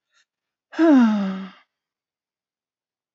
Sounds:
Sigh